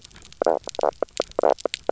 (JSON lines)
{"label": "biophony, knock croak", "recorder": "SoundTrap 300"}